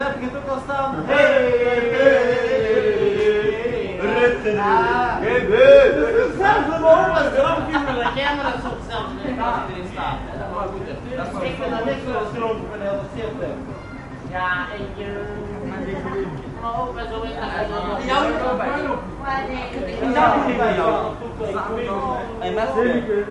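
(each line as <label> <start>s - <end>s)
Drunk people are speaking unintelligibly indoors. 0.0s - 23.3s
Men's prolonged loud exclamations fading away. 1.9s - 3.9s
Men speaking loudly, sounding drunk. 4.1s - 7.7s
A muffled laugh indoors. 7.8s - 9.2s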